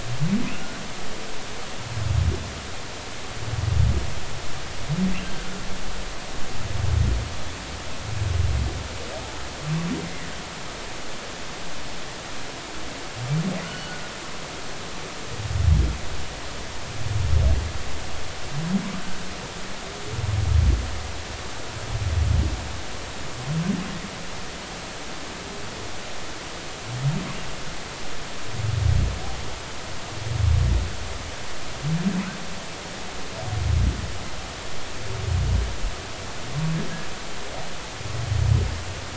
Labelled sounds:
0.5	0.8	humpback whale, 1.3 to 1.6 kHz
5.2	5.4	humpback whale, 3.1 to 3.2 kHz
13.7	13.9	humpback whale, 2.8 to 3.0 kHz

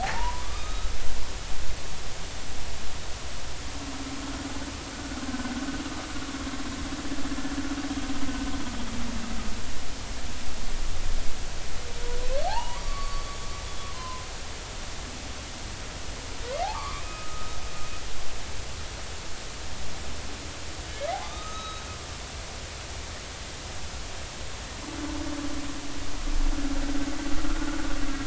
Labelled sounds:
0.0	0.9	humpback whale, 0.80 to 3.9 kHz
4.9	5.2	humpback whale, 1.4 to 1.5 kHz
12.5	14.3	humpback whale, 0.80 to 4.6 kHz
16.6	17.6	humpback whale, 0.80 to 2.6 kHz
21.2	21.8	humpback whale, 1.2 to 6.5 kHz
27.5	27.8	humpback whale, 1.2 to 1.5 kHz

